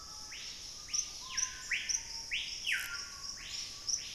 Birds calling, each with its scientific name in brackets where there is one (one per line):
Screaming Piha (Lipaugus vociferans)